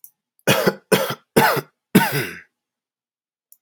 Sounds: Cough